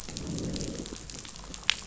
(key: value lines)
label: biophony, growl
recorder: SoundTrap 500